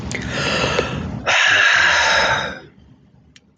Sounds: Sigh